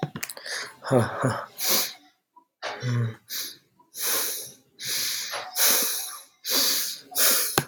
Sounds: Sigh